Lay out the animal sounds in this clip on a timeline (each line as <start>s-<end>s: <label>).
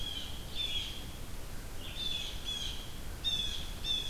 0.0s-0.9s: Blue Jay (Cyanocitta cristata)
0.0s-4.1s: Red-eyed Vireo (Vireo olivaceus)
1.9s-4.1s: Blue Jay (Cyanocitta cristata)